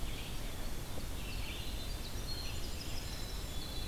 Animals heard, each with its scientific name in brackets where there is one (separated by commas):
Red-eyed Vireo (Vireo olivaceus), Winter Wren (Troglodytes hiemalis)